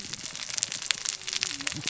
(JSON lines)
{"label": "biophony, cascading saw", "recorder": "SoundTrap 600 or HydroMoth"}